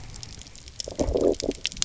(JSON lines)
{"label": "biophony, low growl", "recorder": "SoundTrap 300"}